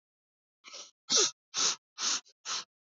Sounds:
Sniff